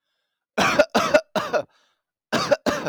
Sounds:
Cough